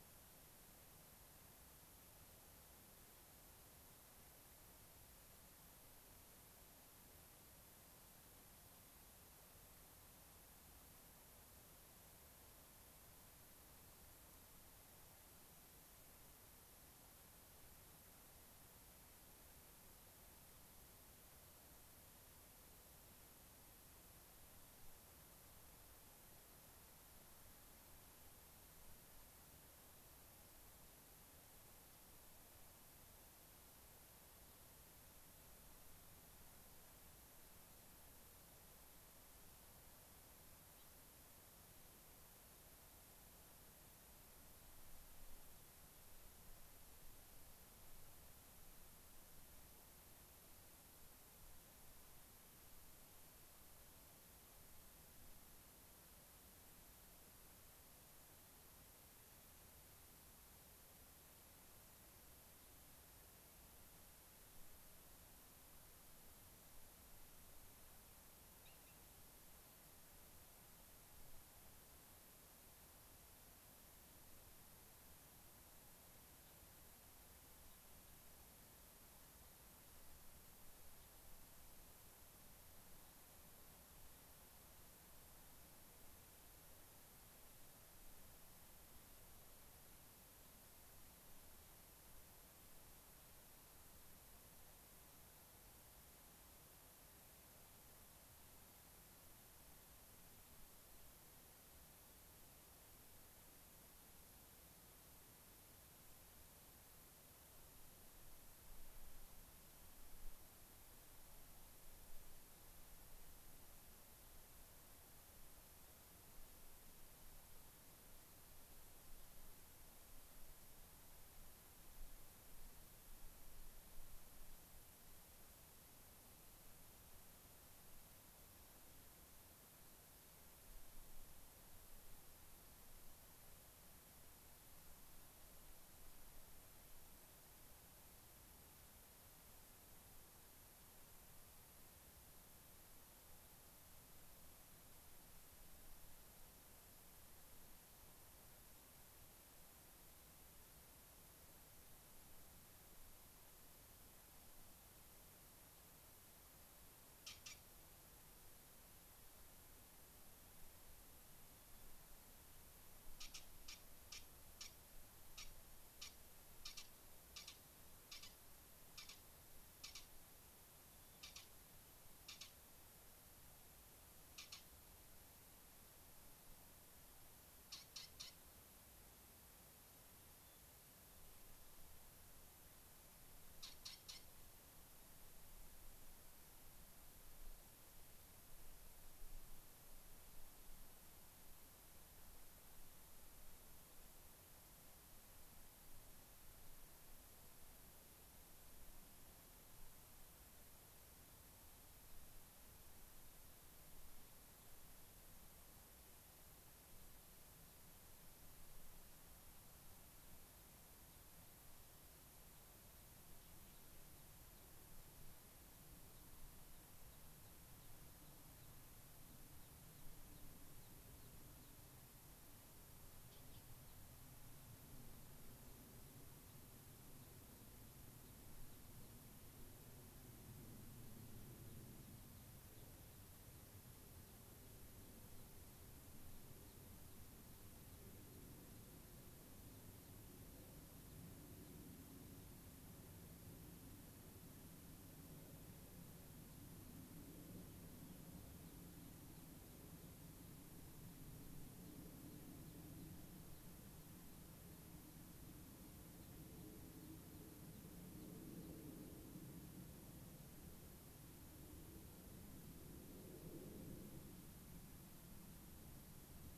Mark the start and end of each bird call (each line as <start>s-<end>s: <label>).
40.7s-40.9s: Gray-crowned Rosy-Finch (Leucosticte tephrocotis)
180.3s-180.7s: Hermit Thrush (Catharus guttatus)
214.4s-214.6s: Gray-crowned Rosy-Finch (Leucosticte tephrocotis)
216.1s-221.8s: Gray-crowned Rosy-Finch (Leucosticte tephrocotis)
223.7s-224.0s: Gray-crowned Rosy-Finch (Leucosticte tephrocotis)
225.9s-229.2s: Gray-crowned Rosy-Finch (Leucosticte tephrocotis)
232.6s-232.9s: Gray-crowned Rosy-Finch (Leucosticte tephrocotis)
235.3s-235.5s: Gray-crowned Rosy-Finch (Leucosticte tephrocotis)
236.5s-241.8s: Gray-crowned Rosy-Finch (Leucosticte tephrocotis)
247.8s-250.2s: Gray-crowned Rosy-Finch (Leucosticte tephrocotis)
251.7s-258.8s: Gray-crowned Rosy-Finch (Leucosticte tephrocotis)